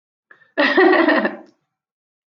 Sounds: Laughter